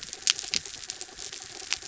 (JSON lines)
{"label": "anthrophony, mechanical", "recorder": "SoundTrap 300"}